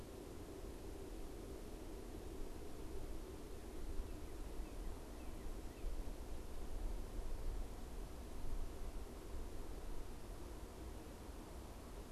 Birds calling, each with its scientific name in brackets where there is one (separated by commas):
Northern Cardinal (Cardinalis cardinalis)